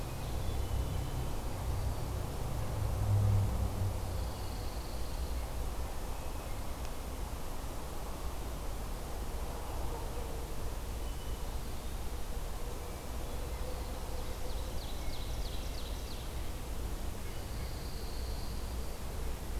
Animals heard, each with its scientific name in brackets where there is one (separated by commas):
Hermit Thrush (Catharus guttatus), Ovenbird (Seiurus aurocapilla), Pine Warbler (Setophaga pinus)